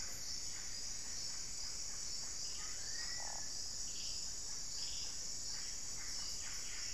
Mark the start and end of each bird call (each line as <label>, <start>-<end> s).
Yellow-rumped Cacique (Cacicus cela), 0.0-6.9 s
Black-faced Cotinga (Conioptilon mcilhennyi), 2.5-3.5 s